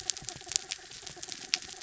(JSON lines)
{"label": "anthrophony, mechanical", "recorder": "SoundTrap 300"}